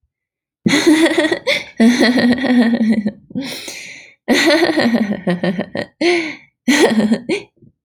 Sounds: Laughter